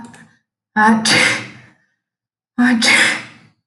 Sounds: Sneeze